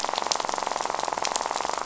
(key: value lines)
label: biophony, rattle
recorder: SoundTrap 500